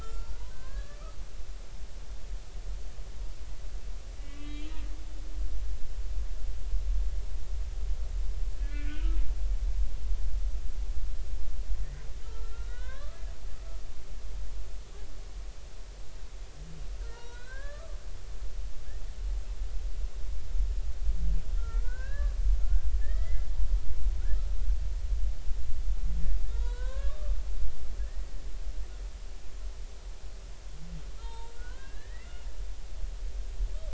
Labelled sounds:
0.0	1.0	humpback whale, 0.99 to 1.5 kHz
1.5	2.0	humpback whale, 1.5 to 1.8 kHz
4.2	4.7	humpback whale, 1.1 to 3.4 kHz
8.6	9.1	humpback whale, 1.4 to 3.2 kHz
12.2	13.2	humpback whale, 0.99 to 4.1 kHz
17.0	17.8	humpback whale, 0.83 to 4.4 kHz
18.5	19.0	humpback whale, 0.99 to 1.4 kHz
21.5	22.3	humpback whale, 1.1 to 1.8 kHz
22.6	23.5	humpback whale, 1.3 to 2.1 kHz
26.5	28.4	humpback whale, 0.90 to 4.0 kHz
31.2	32.5	humpback whale, 0.86 to 4.2 kHz

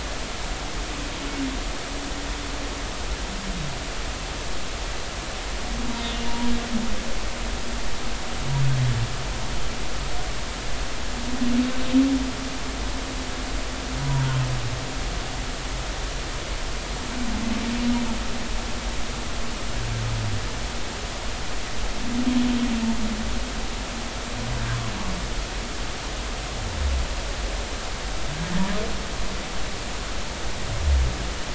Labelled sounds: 6.2	6.5	humpback whale, 0.90 to 0.99 kHz
14.0	14.3	humpback whale, 0.90 to 1.0 kHz

